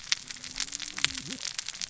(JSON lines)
{"label": "biophony, cascading saw", "recorder": "SoundTrap 600 or HydroMoth"}